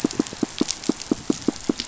{"label": "biophony, pulse", "recorder": "SoundTrap 500"}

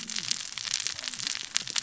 {"label": "biophony, cascading saw", "recorder": "SoundTrap 600 or HydroMoth"}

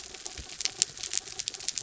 {"label": "anthrophony, mechanical", "recorder": "SoundTrap 300"}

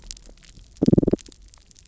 {"label": "biophony, damselfish", "recorder": "SoundTrap 300"}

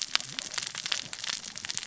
{"label": "biophony, cascading saw", "recorder": "SoundTrap 600 or HydroMoth"}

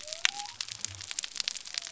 {"label": "biophony", "recorder": "SoundTrap 300"}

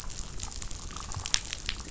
{"label": "biophony, damselfish", "recorder": "SoundTrap 500"}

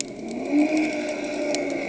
{"label": "anthrophony, boat engine", "recorder": "HydroMoth"}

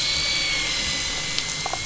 {"label": "anthrophony, boat engine", "recorder": "SoundTrap 500"}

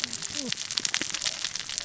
{"label": "biophony, cascading saw", "recorder": "SoundTrap 600 or HydroMoth"}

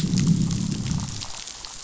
{"label": "biophony, growl", "recorder": "SoundTrap 500"}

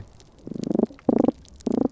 {"label": "biophony", "recorder": "SoundTrap 300"}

